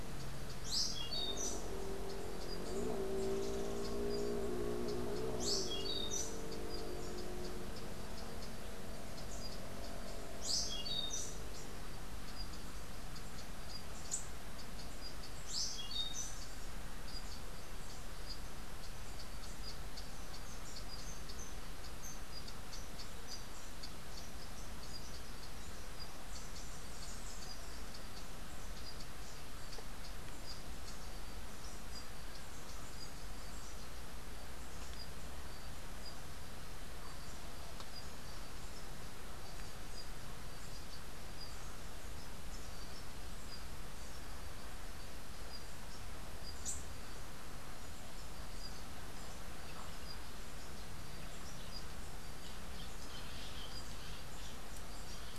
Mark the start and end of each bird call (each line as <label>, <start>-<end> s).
Orange-billed Nightingale-Thrush (Catharus aurantiirostris), 0.6-1.7 s
Orange-billed Nightingale-Thrush (Catharus aurantiirostris), 5.4-6.5 s
Orange-billed Nightingale-Thrush (Catharus aurantiirostris), 10.4-11.5 s
Orange-billed Nightingale-Thrush (Catharus aurantiirostris), 15.2-16.4 s
Rufous-tailed Hummingbird (Amazilia tzacatl), 46.4-46.9 s